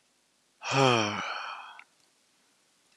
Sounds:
Sigh